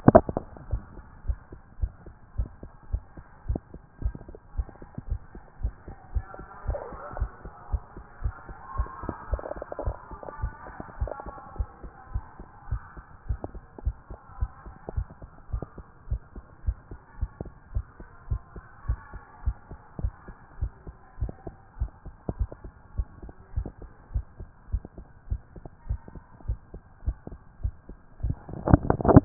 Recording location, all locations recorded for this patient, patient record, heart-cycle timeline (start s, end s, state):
tricuspid valve (TV)
aortic valve (AV)+pulmonary valve (PV)+tricuspid valve (TV)+mitral valve (MV)
#Age: Adolescent
#Sex: Male
#Height: nan
#Weight: nan
#Pregnancy status: False
#Murmur: Absent
#Murmur locations: nan
#Most audible location: nan
#Systolic murmur timing: nan
#Systolic murmur shape: nan
#Systolic murmur grading: nan
#Systolic murmur pitch: nan
#Systolic murmur quality: nan
#Diastolic murmur timing: nan
#Diastolic murmur shape: nan
#Diastolic murmur grading: nan
#Diastolic murmur pitch: nan
#Diastolic murmur quality: nan
#Outcome: Abnormal
#Campaign: 2014 screening campaign
0.00	0.60	unannotated
0.60	0.70	diastole
0.70	0.82	S1
0.82	0.96	systole
0.96	1.04	S2
1.04	1.26	diastole
1.26	1.38	S1
1.38	1.52	systole
1.52	1.60	S2
1.60	1.80	diastole
1.80	1.92	S1
1.92	2.04	systole
2.04	2.14	S2
2.14	2.36	diastole
2.36	2.50	S1
2.50	2.62	systole
2.62	2.72	S2
2.72	2.92	diastole
2.92	3.02	S1
3.02	3.16	systole
3.16	3.24	S2
3.24	3.48	diastole
3.48	3.60	S1
3.60	3.74	systole
3.74	3.82	S2
3.82	4.02	diastole
4.02	4.14	S1
4.14	4.28	systole
4.28	4.36	S2
4.36	4.56	diastole
4.56	4.68	S1
4.68	4.80	systole
4.80	4.88	S2
4.88	5.08	diastole
5.08	5.20	S1
5.20	5.34	systole
5.34	5.42	S2
5.42	5.62	diastole
5.62	5.74	S1
5.74	5.88	systole
5.88	5.96	S2
5.96	6.14	diastole
6.14	6.26	S1
6.26	6.38	systole
6.38	6.46	S2
6.46	6.66	diastole
6.66	6.78	S1
6.78	6.90	systole
6.90	7.00	S2
7.00	7.18	diastole
7.18	7.30	S1
7.30	7.44	systole
7.44	7.52	S2
7.52	7.70	diastole
7.70	7.82	S1
7.82	7.96	systole
7.96	8.04	S2
8.04	8.22	diastole
8.22	8.34	S1
8.34	8.48	systole
8.48	8.56	S2
8.56	8.76	diastole
8.76	8.88	S1
8.88	9.04	systole
9.04	9.14	S2
9.14	9.30	diastole
9.30	9.42	S1
9.42	9.56	systole
9.56	9.64	S2
9.64	9.84	diastole
9.84	9.96	S1
9.96	10.10	systole
10.10	10.20	S2
10.20	10.40	diastole
10.40	10.52	S1
10.52	10.66	systole
10.66	10.76	S2
10.76	11.00	diastole
11.00	11.12	S1
11.12	11.26	systole
11.26	11.34	S2
11.34	11.56	diastole
11.56	11.68	S1
11.68	11.82	systole
11.82	11.92	S2
11.92	12.12	diastole
12.12	12.24	S1
12.24	12.38	systole
12.38	12.48	S2
12.48	12.70	diastole
12.70	12.82	S1
12.82	12.96	systole
12.96	13.04	S2
13.04	13.28	diastole
13.28	13.40	S1
13.40	13.54	systole
13.54	13.62	S2
13.62	13.84	diastole
13.84	13.96	S1
13.96	14.10	systole
14.10	14.18	S2
14.18	14.40	diastole
14.40	14.50	S1
14.50	14.66	systole
14.66	14.74	S2
14.74	14.96	diastole
14.96	15.08	S1
15.08	15.22	systole
15.22	15.30	S2
15.30	15.52	diastole
15.52	15.64	S1
15.64	15.76	systole
15.76	15.86	S2
15.86	16.10	diastole
16.10	16.22	S1
16.22	16.36	systole
16.36	16.44	S2
16.44	16.66	diastole
16.66	16.78	S1
16.78	16.90	systole
16.90	17.00	S2
17.00	17.20	diastole
17.20	17.30	S1
17.30	17.42	systole
17.42	17.52	S2
17.52	17.74	diastole
17.74	17.86	S1
17.86	17.98	systole
17.98	18.08	S2
18.08	18.30	diastole
18.30	18.42	S1
18.42	18.54	systole
18.54	18.64	S2
18.64	18.88	diastole
18.88	19.00	S1
19.00	19.12	systole
19.12	19.22	S2
19.22	19.44	diastole
19.44	19.56	S1
19.56	19.70	systole
19.70	19.80	S2
19.80	20.00	diastole
20.00	20.14	S1
20.14	20.26	systole
20.26	20.36	S2
20.36	20.60	diastole
20.60	20.72	S1
20.72	20.86	systole
20.86	20.96	S2
20.96	21.20	diastole
21.20	21.32	S1
21.32	21.46	systole
21.46	21.56	S2
21.56	21.80	diastole
21.80	21.92	S1
21.92	22.06	systole
22.06	22.14	S2
22.14	22.38	diastole
22.38	22.50	S1
22.50	22.64	systole
22.64	22.72	S2
22.72	22.96	diastole
22.96	23.08	S1
23.08	23.22	systole
23.22	23.32	S2
23.32	23.56	diastole
23.56	23.68	S1
23.68	23.80	systole
23.80	23.90	S2
23.90	24.14	diastole
24.14	24.26	S1
24.26	24.38	systole
24.38	24.48	S2
24.48	24.72	diastole
24.72	24.82	S1
24.82	24.98	systole
24.98	25.06	S2
25.06	25.30	diastole
25.30	25.42	S1
25.42	25.56	systole
25.56	25.64	S2
25.64	25.88	diastole
25.88	26.00	S1
26.00	26.14	systole
26.14	26.22	S2
26.22	26.46	diastole
26.46	26.58	S1
26.58	26.72	systole
26.72	26.82	S2
26.82	27.06	diastole
27.06	27.18	S1
27.18	27.30	systole
27.30	27.40	S2
27.40	27.62	diastole
27.62	27.74	S1
27.74	27.88	systole
27.88	27.98	S2
27.98	28.22	diastole
28.22	29.25	unannotated